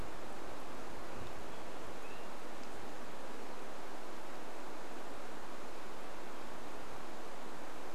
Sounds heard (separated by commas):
Swainson's Thrush call